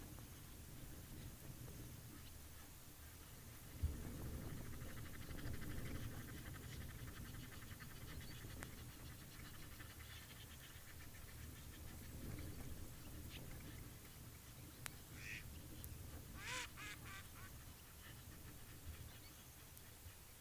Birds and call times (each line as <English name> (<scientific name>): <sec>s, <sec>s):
Egyptian Goose (Alopochen aegyptiaca): 7.8s, 16.4s